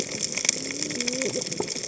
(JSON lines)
{"label": "biophony, cascading saw", "recorder": "HydroMoth"}